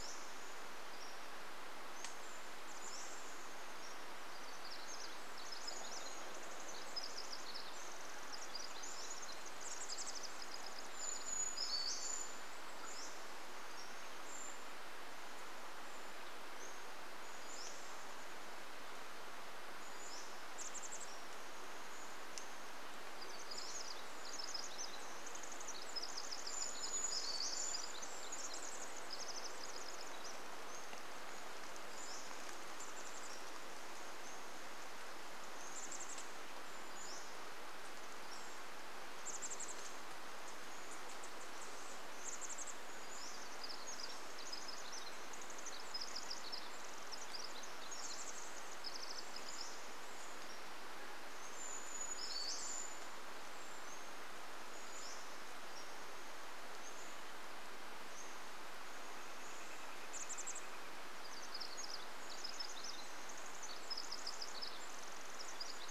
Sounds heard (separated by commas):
Chestnut-backed Chickadee call, Pileated Woodpecker call, Brown Creeper song, Brown Creeper call, Pacific Wren song, Pacific Wren call, Pacific-slope Flycatcher song